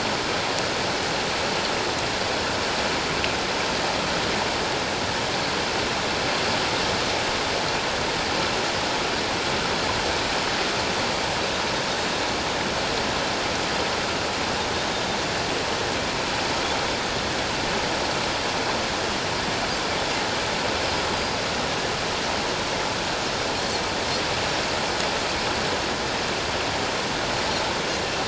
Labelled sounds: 21.1	21.4	Pacific white-sided dolphin, 4.8 to 5.0 kHz

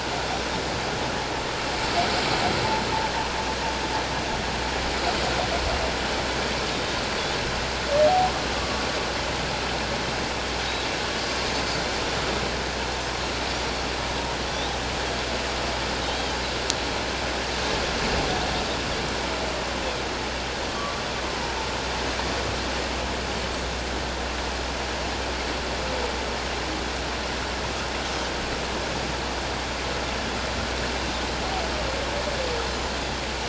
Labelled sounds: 6.7	7.0	Pacific white-sided dolphin, 3.6 to 3.8 kHz
8.6	8.9	humpback whale, 1.1 to 1.2 kHz
16.0	16.4	Pacific white-sided dolphin, 3.0 to 3.3 kHz
20.7	21.0	humpback whale, 1.1 to 1.2 kHz

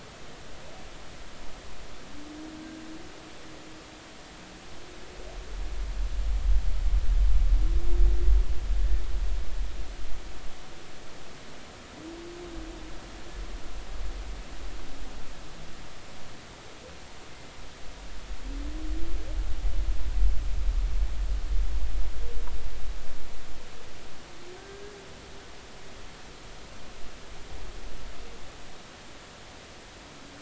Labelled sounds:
24.6	24.8	humpback whale, 1.5 to 1.6 kHz

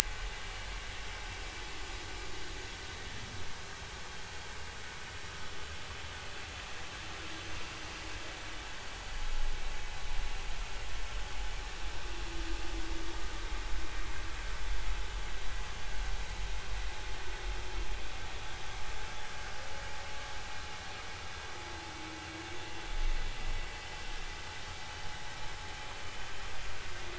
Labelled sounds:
13.4	13.6	humpback whale, 2.1 to 2.2 kHz

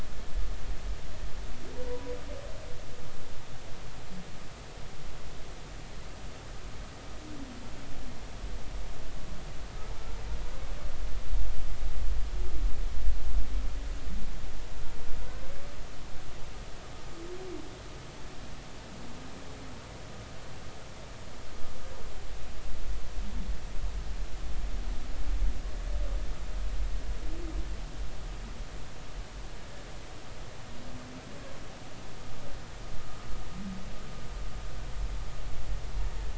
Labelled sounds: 1.8	2.1	humpback whale, 0.93 to 1.0 kHz

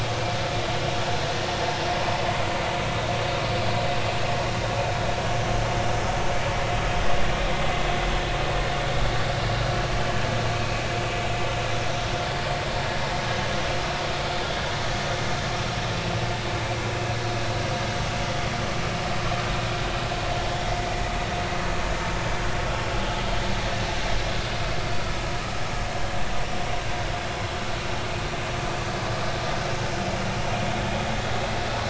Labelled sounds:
10.5	10.8	vessel noise, 2.4 to 2.7 kHz

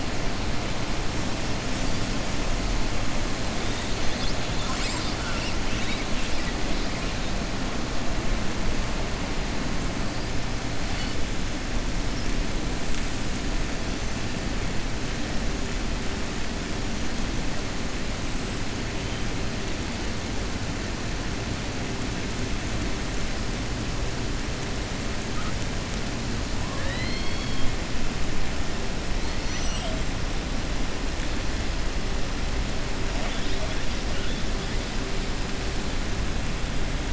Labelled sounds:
26.6	27.7	killer whale, southern resident, 0.55 to 4.7 kHz

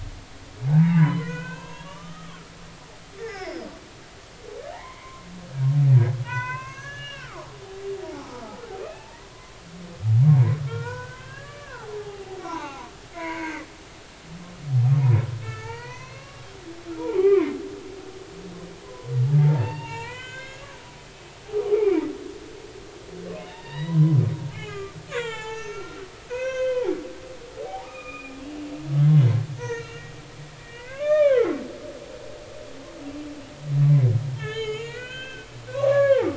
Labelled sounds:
0.7	2.4	humpback whale, 0.80 to 4.1 kHz
3.2	3.7	humpback whale, 0.80 to 5.4 kHz
4.7	5.3	humpback whale, 0.80 to 2.3 kHz
6.2	7.5	humpback whale, 0.83 to 6.7 kHz
8.0	9.2	humpback whale, 0.80 to 2.7 kHz
10.3	13.7	humpback whale, 0.80 to 5.6 kHz
15.4	16.5	humpback whale, 0.83 to 4.6 kHz
17.0	17.6	humpback whale, 0.80 to 2.5 kHz
18.8	20.8	humpback whale, 0.83 to 7.2 kHz
21.7	22.0	humpback whale, 2.1 to 2.5 kHz
23.4	24.2	humpback whale, 0.83 to 4.0 kHz
24.5	26.0	humpback whale, 0.80 to 7.5 kHz
26.3	28.4	humpback whale, 0.80 to 3.7 kHz
29.6	30.1	humpback whale, 1.3 to 6.4 kHz
30.6	31.6	humpback whale, 0.96 to 3.7 kHz
34.3	36.3	humpback whale, 0.80 to 7.1 kHz

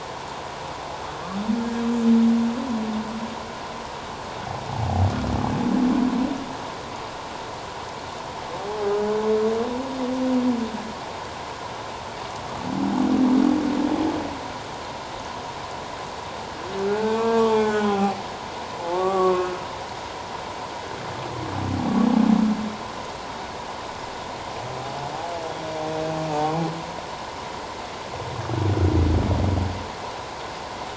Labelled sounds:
16.9	18.2	humpback whale, 0.78 to 3.6 kHz
18.9	19.5	humpback whale, 1.0 to 1.2 kHz

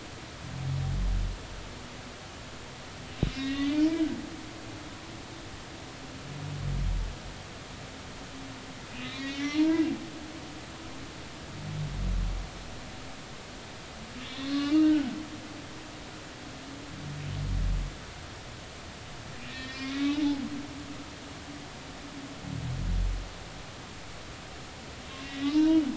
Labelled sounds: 3.3	3.9	humpback whale, 1.8 to 2.8 kHz
8.9	9.8	humpback whale, 0.90 to 5.9 kHz
14.2	15.1	humpback whale, 1.1 to 3.7 kHz
19.4	20.4	humpback whale, 0.80 to 5.4 kHz
25.2	25.9	humpback whale, 0.86 to 3.8 kHz

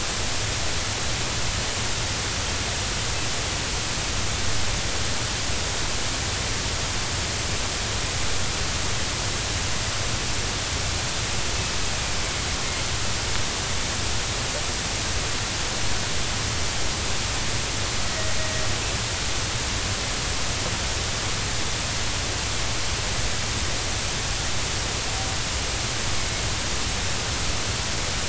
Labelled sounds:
18.0	18.3	killer whale, northern resident, 1.9 to 2.0 kHz

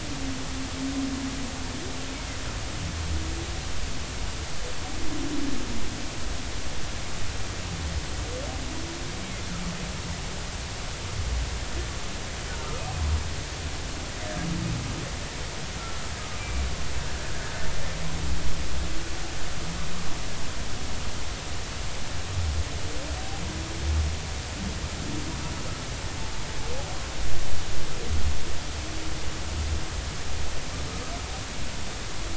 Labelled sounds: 15.8	16.7	humpback whale, 1.3 to 2.5 kHz

